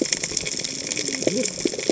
{"label": "biophony, cascading saw", "recorder": "HydroMoth"}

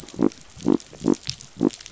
{"label": "biophony", "recorder": "SoundTrap 500"}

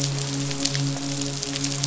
{"label": "biophony, midshipman", "recorder": "SoundTrap 500"}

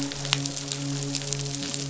{"label": "biophony, midshipman", "recorder": "SoundTrap 500"}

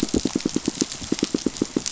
{"label": "biophony, pulse", "recorder": "SoundTrap 500"}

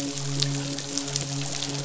{"label": "biophony, midshipman", "recorder": "SoundTrap 500"}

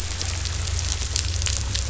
{"label": "anthrophony, boat engine", "recorder": "SoundTrap 500"}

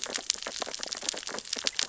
{"label": "biophony, sea urchins (Echinidae)", "recorder": "SoundTrap 600 or HydroMoth"}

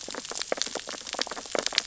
{"label": "biophony, sea urchins (Echinidae)", "recorder": "SoundTrap 600 or HydroMoth"}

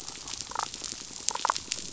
{"label": "biophony, damselfish", "recorder": "SoundTrap 500"}
{"label": "biophony", "recorder": "SoundTrap 500"}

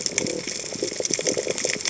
{"label": "biophony", "recorder": "HydroMoth"}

